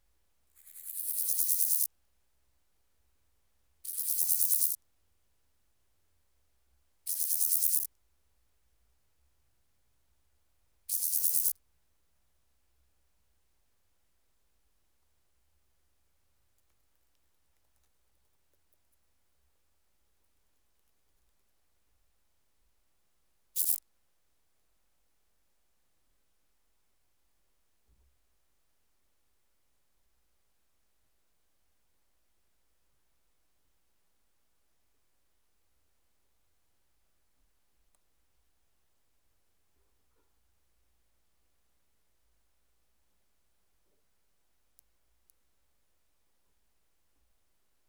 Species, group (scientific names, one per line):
Chorthippus bornhalmi
Orthoptera